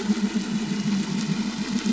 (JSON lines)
{"label": "anthrophony, boat engine", "recorder": "SoundTrap 500"}